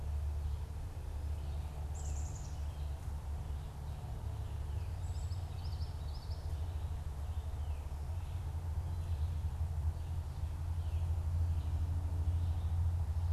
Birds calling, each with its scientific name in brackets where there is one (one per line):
Black-capped Chickadee (Poecile atricapillus)
Common Yellowthroat (Geothlypis trichas)